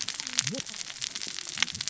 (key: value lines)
label: biophony, cascading saw
recorder: SoundTrap 600 or HydroMoth